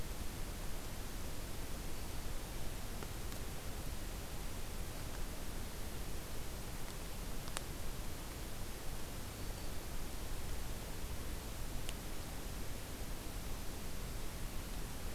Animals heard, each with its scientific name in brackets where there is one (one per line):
Black-throated Green Warbler (Setophaga virens)